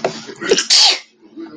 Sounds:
Sneeze